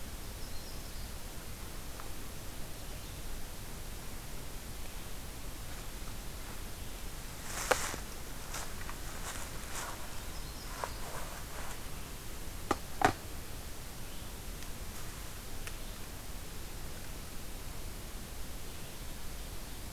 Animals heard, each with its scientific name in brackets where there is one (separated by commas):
Yellow-rumped Warbler (Setophaga coronata)